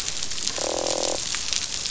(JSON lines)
{"label": "biophony, croak", "recorder": "SoundTrap 500"}